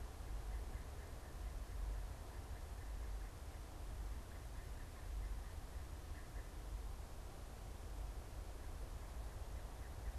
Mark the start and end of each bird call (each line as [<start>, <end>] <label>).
[0.00, 10.18] unidentified bird